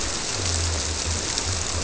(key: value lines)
label: biophony
recorder: SoundTrap 300